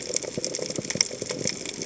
{"label": "biophony, chatter", "recorder": "HydroMoth"}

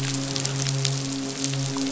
{"label": "biophony, midshipman", "recorder": "SoundTrap 500"}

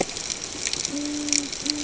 {"label": "ambient", "recorder": "HydroMoth"}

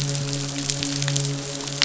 {"label": "biophony, midshipman", "recorder": "SoundTrap 500"}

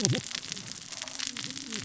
{"label": "biophony, cascading saw", "recorder": "SoundTrap 600 or HydroMoth"}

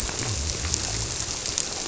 {"label": "biophony", "recorder": "SoundTrap 300"}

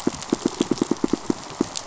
{"label": "biophony, pulse", "recorder": "SoundTrap 500"}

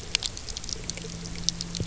{"label": "anthrophony, boat engine", "recorder": "SoundTrap 300"}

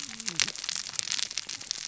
{"label": "biophony, cascading saw", "recorder": "SoundTrap 600 or HydroMoth"}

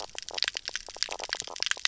{"label": "biophony, knock croak", "recorder": "SoundTrap 300"}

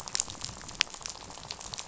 {"label": "biophony, rattle", "recorder": "SoundTrap 500"}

